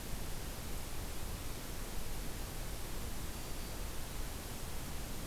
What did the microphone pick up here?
Black-throated Green Warbler